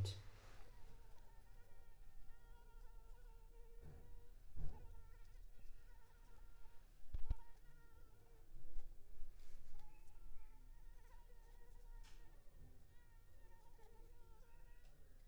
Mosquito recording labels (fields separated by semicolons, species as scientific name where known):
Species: Anopheles arabiensis; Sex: female; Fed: unfed; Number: one; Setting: cup